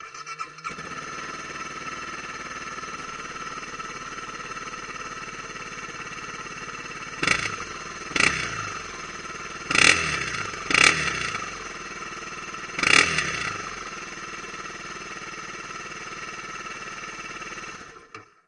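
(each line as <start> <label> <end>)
0.0 A motorcycle engine starting and running. 17.0
17.0 The engine of a motorcycle is turned off. 18.5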